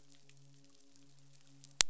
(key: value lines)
label: biophony, midshipman
recorder: SoundTrap 500